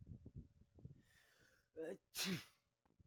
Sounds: Sneeze